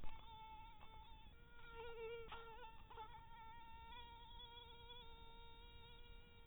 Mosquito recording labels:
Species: mosquito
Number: one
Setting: cup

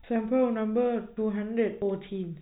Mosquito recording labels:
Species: no mosquito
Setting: cup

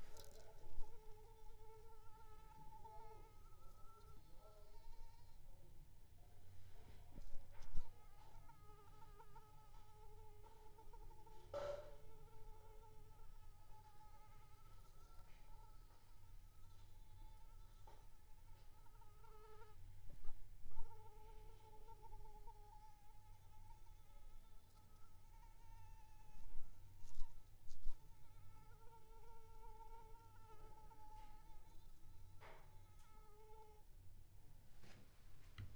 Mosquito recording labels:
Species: Anopheles arabiensis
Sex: female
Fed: unfed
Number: one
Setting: cup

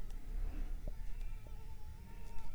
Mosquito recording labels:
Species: Anopheles arabiensis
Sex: female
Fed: unfed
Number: one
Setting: cup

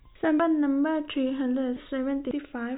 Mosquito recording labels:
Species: no mosquito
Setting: cup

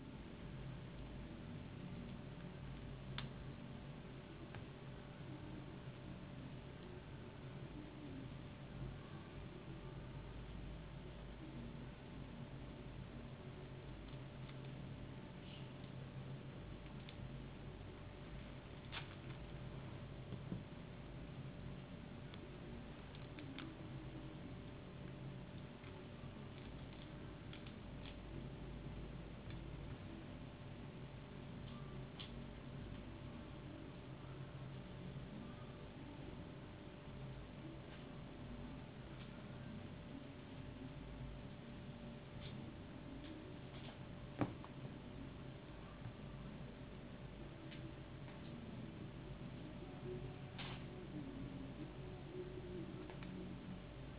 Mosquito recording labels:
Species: no mosquito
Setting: insect culture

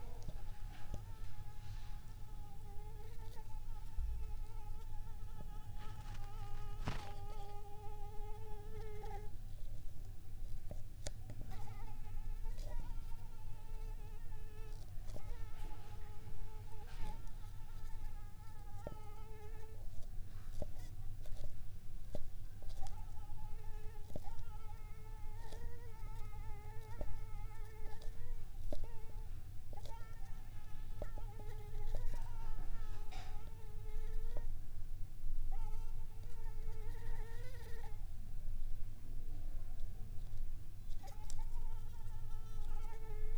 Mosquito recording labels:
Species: Anopheles arabiensis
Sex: female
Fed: unfed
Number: one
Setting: cup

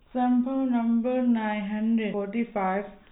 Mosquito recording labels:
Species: no mosquito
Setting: cup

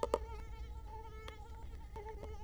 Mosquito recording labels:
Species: Culex quinquefasciatus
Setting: cup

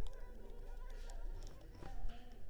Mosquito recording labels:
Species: Anopheles arabiensis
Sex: female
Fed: unfed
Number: one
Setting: cup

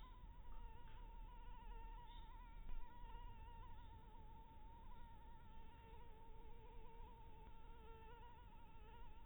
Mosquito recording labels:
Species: Anopheles harrisoni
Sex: female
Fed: blood-fed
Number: one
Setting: cup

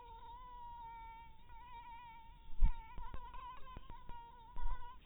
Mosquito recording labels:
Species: mosquito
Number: one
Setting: cup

